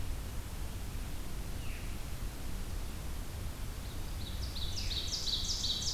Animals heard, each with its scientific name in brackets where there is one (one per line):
Ovenbird (Seiurus aurocapilla)
Veery (Catharus fuscescens)